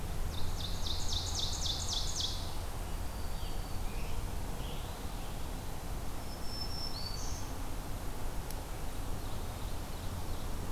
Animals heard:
Ovenbird (Seiurus aurocapilla), Scarlet Tanager (Piranga olivacea), Black-throated Green Warbler (Setophaga virens)

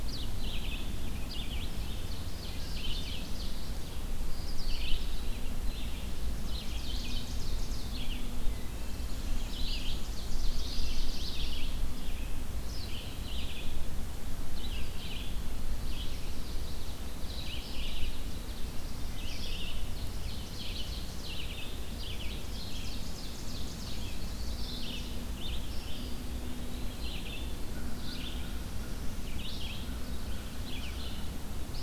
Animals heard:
Ovenbird (Seiurus aurocapilla), Red-eyed Vireo (Vireo olivaceus), Black-throated Blue Warbler (Setophaga caerulescens), Black-and-white Warbler (Mniotilta varia), American Crow (Corvus brachyrhynchos), Eastern Wood-Pewee (Contopus virens)

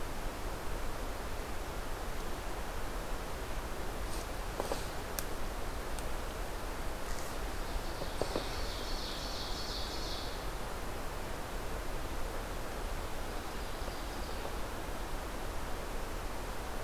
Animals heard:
Ovenbird (Seiurus aurocapilla)

